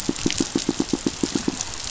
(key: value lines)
label: biophony, pulse
recorder: SoundTrap 500